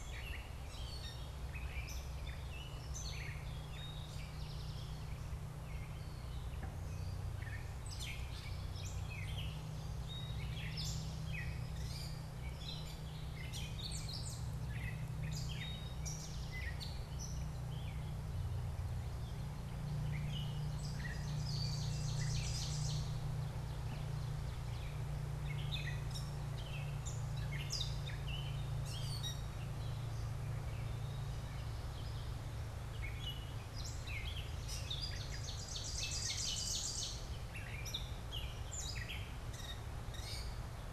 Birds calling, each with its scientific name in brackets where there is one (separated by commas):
Gray Catbird (Dumetella carolinensis), Eastern Towhee (Pipilo erythrophthalmus), Ovenbird (Seiurus aurocapilla)